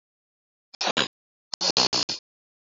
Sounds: Sniff